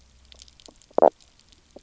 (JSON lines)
{"label": "biophony, knock croak", "recorder": "SoundTrap 300"}